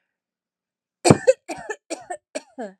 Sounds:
Cough